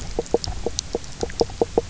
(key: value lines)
label: biophony, knock croak
recorder: SoundTrap 300